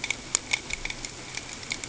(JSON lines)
{"label": "ambient", "recorder": "HydroMoth"}